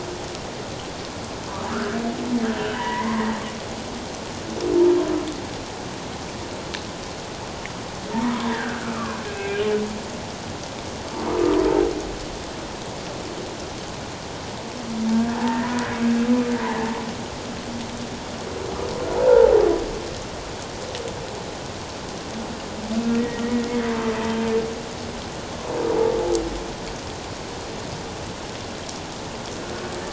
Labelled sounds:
1.7	3.2	humpback whale, 0.91 to 3.1 kHz
8.3	9.7	humpback whale, 0.91 to 2.7 kHz
15.1	15.6	humpback whale, 0.78 to 1.8 kHz
19.2	19.6	humpback whale, 0.78 to 1.0 kHz
23.2	23.7	humpback whale, 1.8 to 2.0 kHz

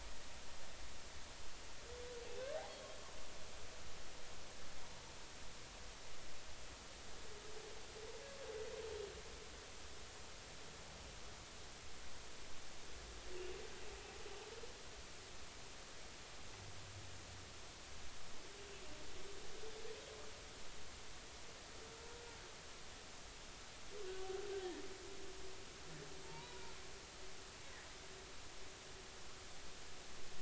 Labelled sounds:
24.6	24.8	humpback whale, 1.7 to 2.0 kHz
26.2	26.6	humpback whale, 0.86 to 2.5 kHz

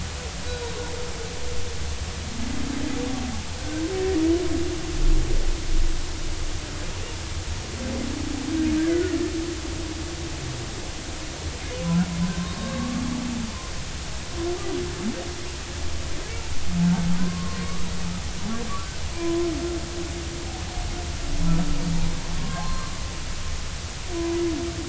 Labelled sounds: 3.6	3.8	humpback whale, 1.5 to 1.6 kHz
8.9	9.2	humpback whale, 1.3 to 1.6 kHz
12.3	13.1	humpback whale, 1.0 to 3.9 kHz
17.2	17.9	humpback whale, 0.99 to 1.3 kHz
19.1	19.5	humpback whale, 0.96 to 1.1 kHz
22.4	23.0	humpback whale, 0.99 to 4.3 kHz
24.1	24.4	humpback whale, 0.93 to 1.1 kHz

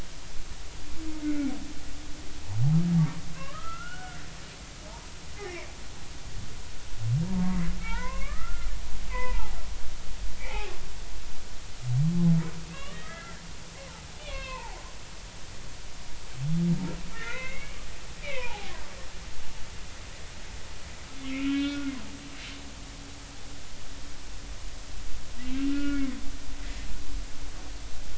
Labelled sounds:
1.2	1.5	humpback whale, 1.4 to 1.5 kHz
3.3	4.2	humpback whale, 0.99 to 3.0 kHz
5.4	5.7	humpback whale, 1.9 to 2.6 kHz
7.2	8.7	humpback whale, 0.83 to 2.9 kHz
9.1	9.6	humpback whale, 0.80 to 2.7 kHz
10.4	10.7	humpback whale, 0.80 to 2.5 kHz
12.7	13.4	humpback whale, 0.99 to 3.4 kHz
14.2	14.8	humpback whale, 0.80 to 4.4 kHz
17.1	17.8	humpback whale, 1.3 to 2.9 kHz
18.2	18.7	humpback whale, 0.80 to 3.0 kHz
21.1	21.9	humpback whale, 1.1 to 3.8 kHz
25.7	26.1	humpback whale, 1.3 to 2.9 kHz

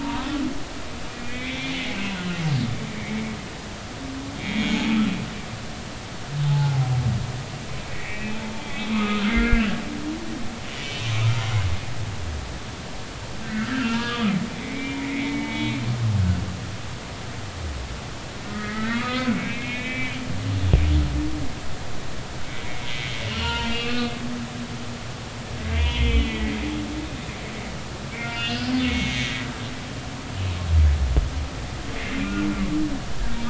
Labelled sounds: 0.0	0.3	humpback whale, 0.86 to 1.3 kHz
1.1	1.8	humpback whale, 1.9 to 3.6 kHz
4.4	4.8	humpback whale, 1.9 to 3.4 kHz
5.6	6.7	humpback whale, 0.80 to 6.9 kHz
7.9	9.7	humpback whale, 0.99 to 2.6 kHz
10.8	11.5	humpback whale, 1.2 to 2.7 kHz
13.4	15.8	humpback whale, 0.86 to 3.0 kHz
18.5	20.2	humpback whale, 1.1 to 4.2 kHz
22.6	24.1	humpback whale, 0.86 to 3.1 kHz
25.6	26.5	humpback whale, 1.9 to 3.4 kHz
28.1	29.3	humpback whale, 1.3 to 3.1 kHz

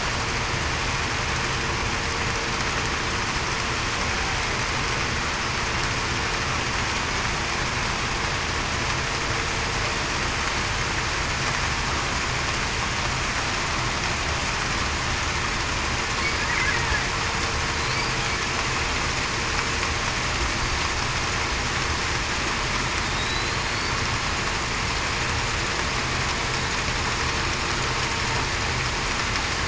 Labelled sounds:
23.2	23.5	killer whale, Bigg's (transient), 3.7 to 4.1 kHz

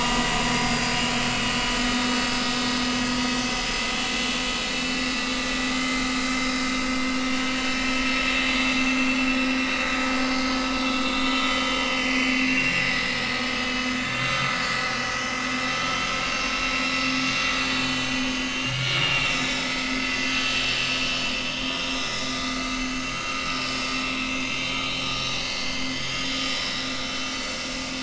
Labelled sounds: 0.0	1.0	vessel noise, 2.0 to 4.9 kHz
1.6	1.9	vessel noise, 2.8 to 3.0 kHz
3.3	3.9	vessel noise, 3.0 to 5.1 kHz
4.6	4.9	vessel noise, 3.7 to 3.8 kHz
5.7	6.1	vessel noise, 2.0 to 2.1 kHz
6.8	7.8	vessel noise, 3.5 to 4.9 kHz
8.3	8.6	vessel noise, 4.5 to 4.6 kHz
9.3	10.0	vessel noise, 3.6 to 3.9 kHz
11.0	14.9	vessel noise, 1.3 to 6.6 kHz
15.5	16.0	vessel noise, 5.3 to 6.1 kHz
17.6	20.8	vessel noise, 2.0 to 8.0 kHz
21.4	23.4	vessel noise, 1.2 to 6.4 kHz
24.2	27.0	vessel noise, 1.3 to 6.7 kHz
27.3	28.0	vessel noise, 2.4 to 4.7 kHz

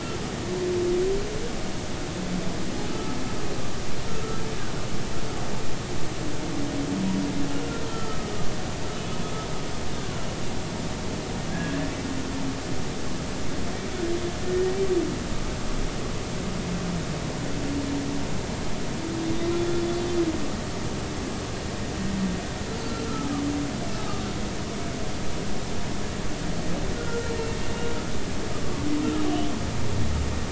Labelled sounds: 2.9	3.2	humpback whale, 1.2 to 1.4 kHz
7.9	8.3	humpback whale, 1.2 to 1.4 kHz
11.5	11.9	humpback whale, 1.6 to 1.8 kHz
14.5	14.8	humpback whale, 1.8 to 1.9 kHz
19.3	20.1	humpback whale, 3.4 to 3.8 kHz
22.8	23.4	humpback whale, 1.1 to 1.4 kHz
23.9	24.3	humpback whale, 1.2 to 1.3 kHz
27.0	27.3	humpback whale, 1.3 to 1.5 kHz
28.5	28.9	humpback whale, 1.1 to 1.3 kHz

